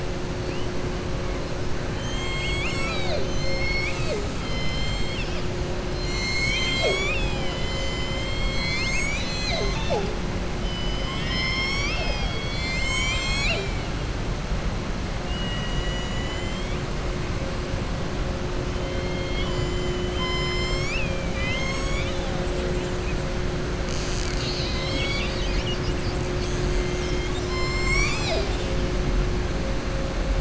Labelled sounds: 4.4	5.4	killer whale, southern resident, 2.1 to 5.6 kHz
15.2	16.8	killer whale, southern resident, 1.9 to 7.8 kHz

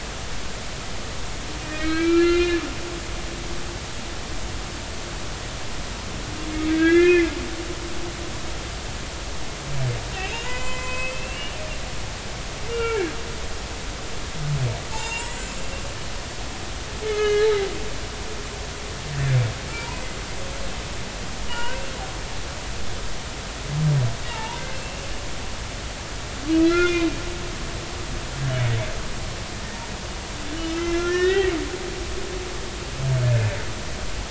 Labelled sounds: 1.6	2.6	humpback whale, 1.2 to 4.3 kHz
6.5	7.3	humpback whale, 1.2 to 3.6 kHz
10.1	11.7	humpback whale, 0.90 to 7.2 kHz
12.7	13.1	humpback whale, 1.3 to 2.8 kHz
14.9	15.6	humpback whale, 0.83 to 7.5 kHz
17.0	17.7	humpback whale, 1.2 to 4.0 kHz
21.5	21.8	humpback whale, 0.86 to 3.0 kHz
24.3	25.0	humpback whale, 0.83 to 2.8 kHz
26.6	27.1	humpback whale, 1.3 to 3.6 kHz
30.7	31.5	humpback whale, 1.2 to 3.2 kHz
33.2	33.6	humpback whale, 1.7 to 1.8 kHz

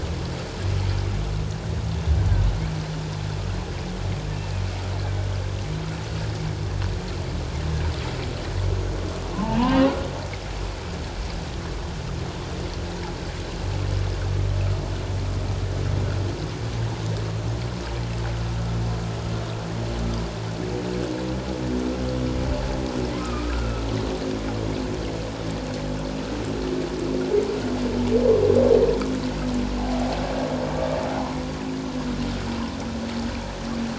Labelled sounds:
9.4	9.9	humpback whale, 0.84 to 3.0 kHz
23.2	23.8	humpback whale, 1.2 to 1.5 kHz

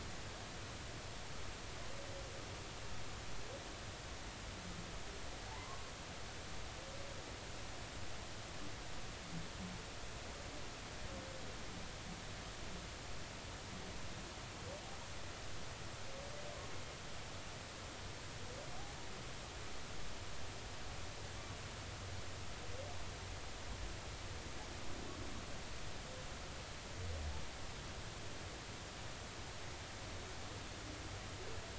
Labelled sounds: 5.5	5.9	humpback whale, 0.80 to 1.2 kHz

